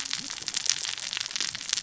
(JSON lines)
{"label": "biophony, cascading saw", "recorder": "SoundTrap 600 or HydroMoth"}